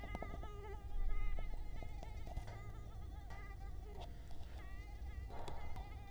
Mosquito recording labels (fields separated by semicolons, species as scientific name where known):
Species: Culex quinquefasciatus; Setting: cup